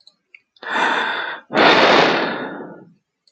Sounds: Sigh